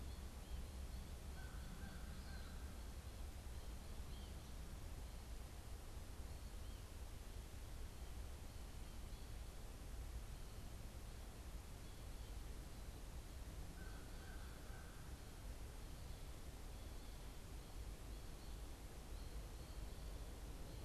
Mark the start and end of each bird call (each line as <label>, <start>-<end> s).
American Goldfinch (Spinus tristis), 0.0-4.9 s
American Crow (Corvus brachyrhynchos), 1.1-2.8 s
American Crow (Corvus brachyrhynchos), 13.4-15.1 s